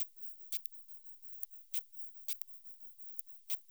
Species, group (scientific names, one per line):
Isophya camptoxypha
Orthoptera